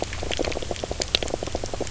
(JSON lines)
{"label": "biophony, knock croak", "recorder": "SoundTrap 300"}